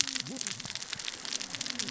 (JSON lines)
{"label": "biophony, cascading saw", "recorder": "SoundTrap 600 or HydroMoth"}